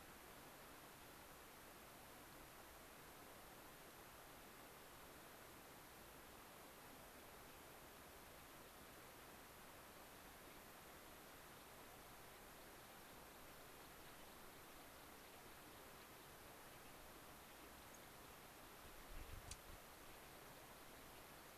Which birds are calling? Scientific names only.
Zonotrichia leucophrys, Junco hyemalis